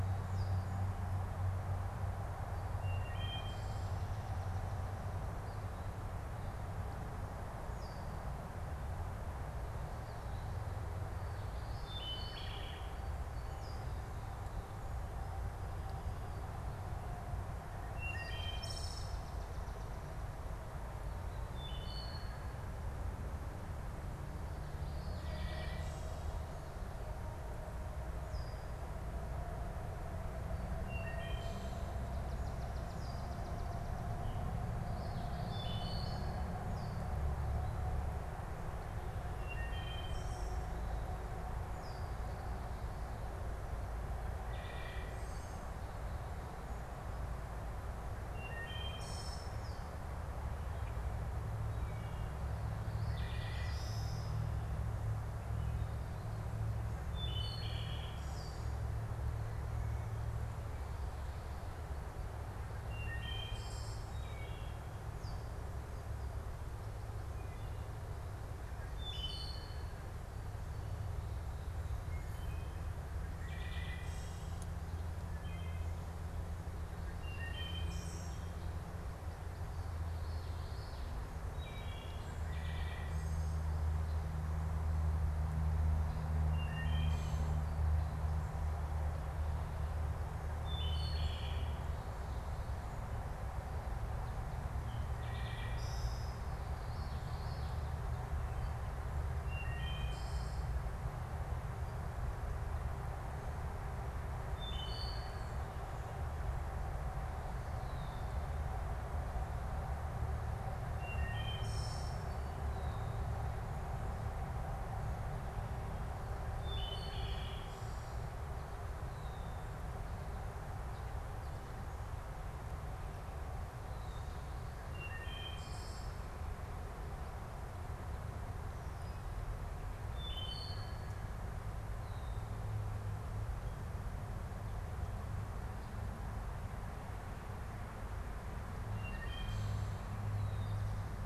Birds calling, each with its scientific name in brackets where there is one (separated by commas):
Swamp Sparrow (Melospiza georgiana), Red-winged Blackbird (Agelaius phoeniceus), Common Yellowthroat (Geothlypis trichas), Wood Thrush (Hylocichla mustelina), unidentified bird